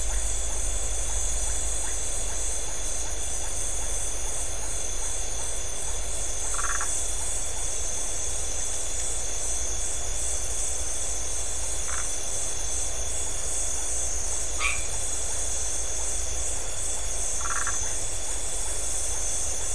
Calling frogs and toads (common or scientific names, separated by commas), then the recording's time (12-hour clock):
Iporanga white-lipped frog, Phyllomedusa distincta, white-edged tree frog
10:30pm